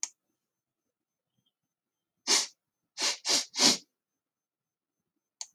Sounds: Sniff